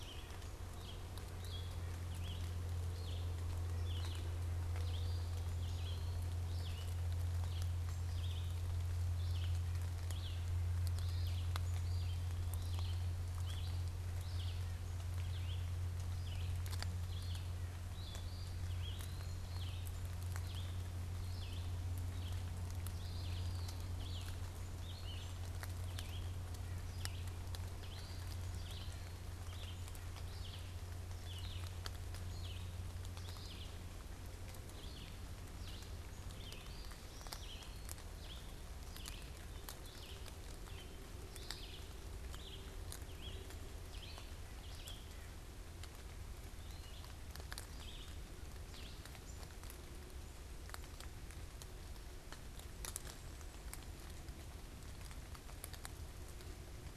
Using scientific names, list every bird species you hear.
Sitta carolinensis, Vireo olivaceus, Contopus virens